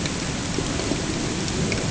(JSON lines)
{"label": "ambient", "recorder": "HydroMoth"}